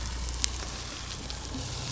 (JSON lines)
{"label": "biophony", "recorder": "SoundTrap 300"}